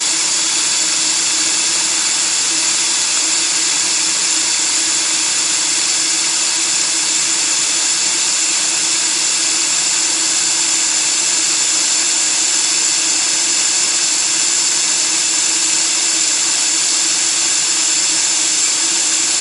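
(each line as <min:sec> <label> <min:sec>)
0:00.0 A constant screeching sound. 0:19.4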